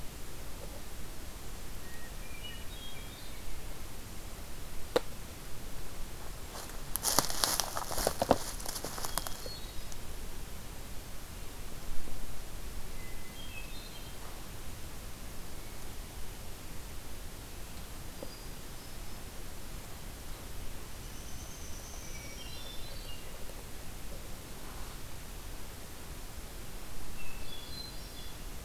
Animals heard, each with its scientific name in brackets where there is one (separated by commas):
Hermit Thrush (Catharus guttatus), Downy Woodpecker (Dryobates pubescens)